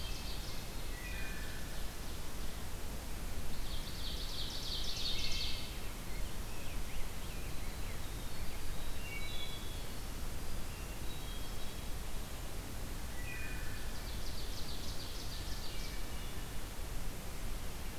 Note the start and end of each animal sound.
0.0s-0.6s: Hermit Thrush (Catharus guttatus)
0.0s-2.7s: Ovenbird (Seiurus aurocapilla)
0.8s-1.8s: Wood Thrush (Hylocichla mustelina)
3.4s-6.0s: Ovenbird (Seiurus aurocapilla)
4.9s-5.8s: Wood Thrush (Hylocichla mustelina)
5.7s-8.4s: Rose-breasted Grosbeak (Pheucticus ludovicianus)
6.9s-10.8s: Winter Wren (Troglodytes hiemalis)
8.9s-9.7s: Wood Thrush (Hylocichla mustelina)
10.6s-12.0s: Hermit Thrush (Catharus guttatus)
13.0s-13.9s: Wood Thrush (Hylocichla mustelina)
13.4s-16.4s: Ovenbird (Seiurus aurocapilla)
15.2s-16.5s: Hermit Thrush (Catharus guttatus)

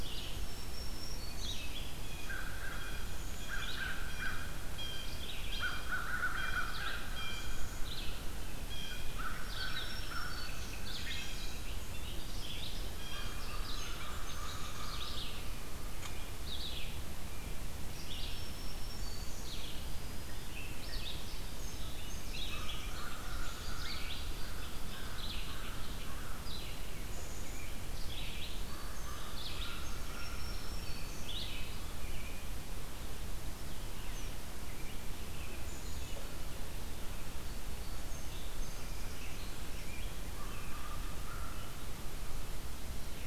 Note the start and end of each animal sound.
0.0s-1.8s: Black-throated Green Warbler (Setophaga virens)
0.0s-43.3s: Red-eyed Vireo (Vireo olivaceus)
1.9s-13.6s: Blue Jay (Cyanocitta cristata)
2.2s-15.7s: American Crow (Corvus brachyrhynchos)
3.0s-3.9s: Black-capped Chickadee (Poecile atricapillus)
9.4s-11.7s: Black-throated Green Warbler (Setophaga virens)
10.3s-15.8s: Bobolink (Dolichonyx oryzivorus)
17.6s-19.7s: Black-throated Green Warbler (Setophaga virens)
20.6s-21.4s: Eastern Wood-Pewee (Contopus virens)
20.8s-25.9s: Bobolink (Dolichonyx oryzivorus)
22.5s-31.0s: American Crow (Corvus brachyrhynchos)
28.4s-31.7s: Black-throated Green Warbler (Setophaga virens)
37.3s-40.0s: Song Sparrow (Melospiza melodia)
40.3s-42.3s: American Crow (Corvus brachyrhynchos)

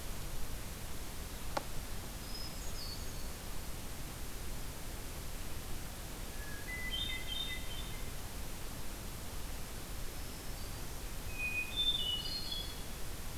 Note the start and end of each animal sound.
2.1s-3.7s: Hermit Thrush (Catharus guttatus)
6.2s-8.3s: Hermit Thrush (Catharus guttatus)
9.7s-11.1s: Black-throated Green Warbler (Setophaga virens)
11.1s-12.8s: Hermit Thrush (Catharus guttatus)

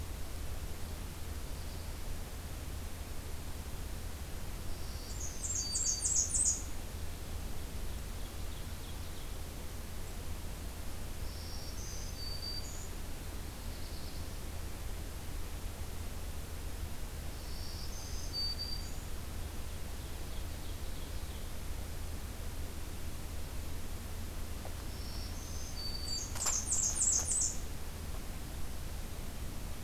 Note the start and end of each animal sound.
4.6s-6.6s: Black-throated Green Warbler (Setophaga virens)
5.0s-6.7s: Blackburnian Warbler (Setophaga fusca)
7.4s-9.3s: Ovenbird (Seiurus aurocapilla)
11.0s-13.0s: Black-throated Green Warbler (Setophaga virens)
13.1s-14.3s: Black-throated Blue Warbler (Setophaga caerulescens)
17.2s-19.1s: Black-throated Green Warbler (Setophaga virens)
19.5s-21.5s: Ovenbird (Seiurus aurocapilla)
24.8s-26.3s: Black-throated Green Warbler (Setophaga virens)
25.9s-27.6s: Blackburnian Warbler (Setophaga fusca)

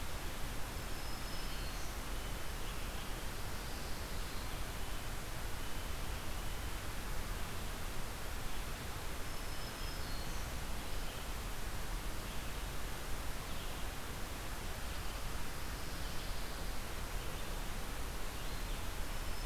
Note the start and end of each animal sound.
0.0s-19.5s: Red-eyed Vireo (Vireo olivaceus)
0.5s-2.2s: Black-throated Green Warbler (Setophaga virens)
3.3s-4.5s: Pine Warbler (Setophaga pinus)
9.0s-10.9s: Black-throated Green Warbler (Setophaga virens)
15.7s-16.8s: Pine Warbler (Setophaga pinus)
19.0s-19.5s: Black-throated Green Warbler (Setophaga virens)

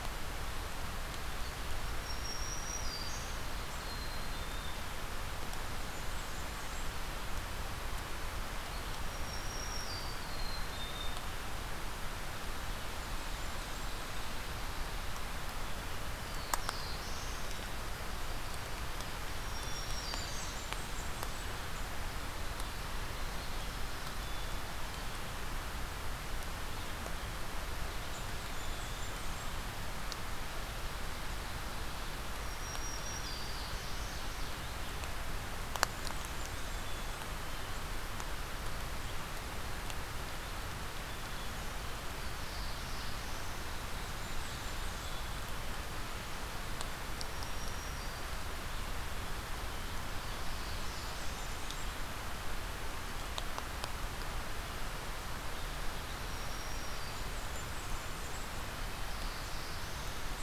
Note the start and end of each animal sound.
1.6s-3.5s: Black-throated Green Warbler (Setophaga virens)
3.7s-4.9s: Black-capped Chickadee (Poecile atricapillus)
5.4s-7.2s: Blackburnian Warbler (Setophaga fusca)
8.6s-10.4s: Black-throated Green Warbler (Setophaga virens)
10.1s-11.3s: Black-capped Chickadee (Poecile atricapillus)
12.5s-14.4s: Blackburnian Warbler (Setophaga fusca)
15.8s-17.5s: Black-throated Blue Warbler (Setophaga caerulescens)
19.2s-20.7s: Black-throated Green Warbler (Setophaga virens)
19.6s-21.7s: Blackburnian Warbler (Setophaga fusca)
23.0s-25.3s: Black-capped Chickadee (Poecile atricapillus)
27.6s-29.7s: Blackburnian Warbler (Setophaga fusca)
28.4s-29.5s: Black-capped Chickadee (Poecile atricapillus)
32.3s-33.9s: Black-throated Green Warbler (Setophaga virens)
33.1s-34.8s: Ovenbird (Seiurus aurocapilla)
35.8s-37.3s: Blackburnian Warbler (Setophaga fusca)
36.5s-37.8s: Black-capped Chickadee (Poecile atricapillus)
41.1s-42.2s: Black-capped Chickadee (Poecile atricapillus)
41.9s-43.7s: Black-throated Blue Warbler (Setophaga caerulescens)
43.7s-45.2s: Blackburnian Warbler (Setophaga fusca)
44.9s-45.8s: Black-capped Chickadee (Poecile atricapillus)
47.0s-48.3s: Black-throated Green Warbler (Setophaga virens)
48.9s-50.2s: Black-capped Chickadee (Poecile atricapillus)
50.7s-52.1s: Blackburnian Warbler (Setophaga fusca)
56.0s-57.5s: Black-throated Green Warbler (Setophaga virens)
56.8s-58.6s: Blackburnian Warbler (Setophaga fusca)
58.5s-60.4s: Black-throated Blue Warbler (Setophaga caerulescens)

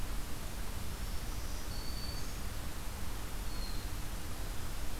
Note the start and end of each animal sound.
0.6s-2.6s: Black-throated Green Warbler (Setophaga virens)
3.4s-3.9s: Hermit Thrush (Catharus guttatus)

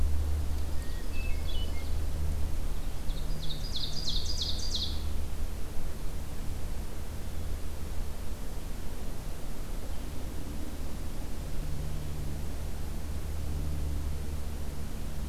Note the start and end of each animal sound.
0.5s-2.1s: Ovenbird (Seiurus aurocapilla)
0.7s-1.9s: Hermit Thrush (Catharus guttatus)
2.8s-5.1s: Ovenbird (Seiurus aurocapilla)

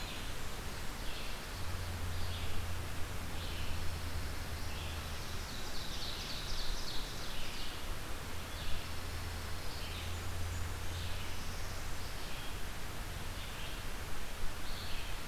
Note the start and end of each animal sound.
0.0s-1.1s: Blackburnian Warbler (Setophaga fusca)
0.0s-15.3s: Red-eyed Vireo (Vireo olivaceus)
3.2s-4.8s: Pine Warbler (Setophaga pinus)
5.3s-7.3s: Ovenbird (Seiurus aurocapilla)
8.6s-10.0s: Pine Warbler (Setophaga pinus)
9.7s-10.8s: Blackburnian Warbler (Setophaga fusca)
11.1s-12.2s: Northern Parula (Setophaga americana)

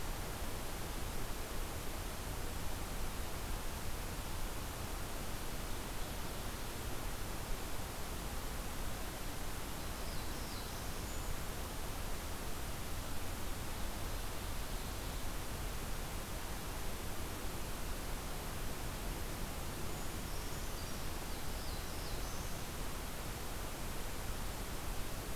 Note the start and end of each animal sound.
5.6s-7.0s: Ovenbird (Seiurus aurocapilla)
9.9s-11.0s: Black-throated Blue Warbler (Setophaga caerulescens)
11.0s-11.4s: Brown Creeper (Certhia americana)
13.6s-15.5s: Ovenbird (Seiurus aurocapilla)
19.9s-21.1s: Brown Creeper (Certhia americana)
21.1s-22.6s: Black-throated Blue Warbler (Setophaga caerulescens)

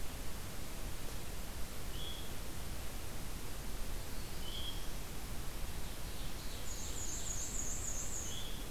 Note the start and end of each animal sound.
1.7s-2.4s: Veery (Catharus fuscescens)
3.7s-5.2s: Black-throated Blue Warbler (Setophaga caerulescens)
4.4s-4.9s: Veery (Catharus fuscescens)
5.6s-7.8s: Ovenbird (Seiurus aurocapilla)
6.5s-8.6s: Black-and-white Warbler (Mniotilta varia)
8.2s-8.7s: Veery (Catharus fuscescens)

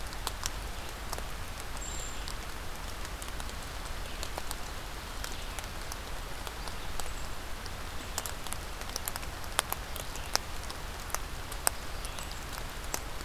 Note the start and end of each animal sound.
1.7s-2.2s: Brown Creeper (Certhia americana)

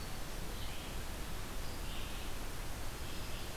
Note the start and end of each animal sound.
0.0s-3.6s: Red-eyed Vireo (Vireo olivaceus)

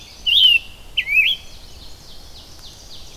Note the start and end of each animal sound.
0.0s-0.6s: Chestnut-sided Warbler (Setophaga pensylvanica)
0.0s-1.5s: Scarlet Tanager (Piranga olivacea)
0.0s-3.2s: Red-eyed Vireo (Vireo olivaceus)
1.0s-2.2s: Chestnut-sided Warbler (Setophaga pensylvanica)
1.7s-3.2s: Ovenbird (Seiurus aurocapilla)

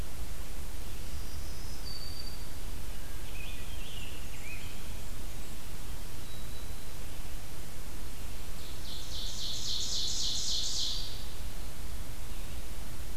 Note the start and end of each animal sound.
0.8s-2.7s: Black-throated Green Warbler (Setophaga virens)
2.7s-4.8s: Scarlet Tanager (Piranga olivacea)
3.8s-5.7s: Blackburnian Warbler (Setophaga fusca)
5.9s-7.1s: Black-throated Green Warbler (Setophaga virens)
8.4s-11.3s: Ovenbird (Seiurus aurocapilla)

